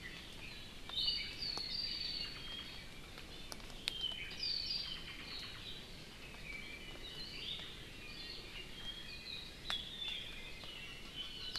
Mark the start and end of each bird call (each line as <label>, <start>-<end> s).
Iiwi (Drepanis coccinea), 0.8-1.4 s
Apapane (Himatione sanguinea), 1.3-3.1 s
Apapane (Himatione sanguinea), 3.8-5.9 s
Iiwi (Drepanis coccinea), 7.3-7.7 s
Apapane (Himatione sanguinea), 8.7-11.5 s